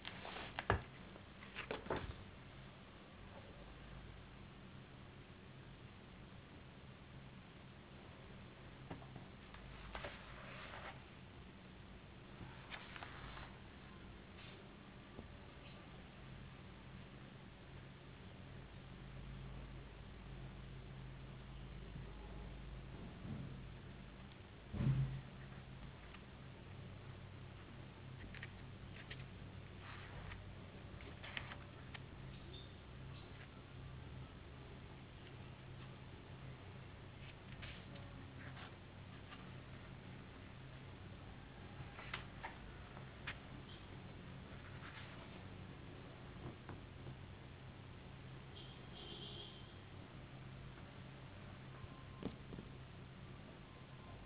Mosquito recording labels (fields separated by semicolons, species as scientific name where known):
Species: no mosquito; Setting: insect culture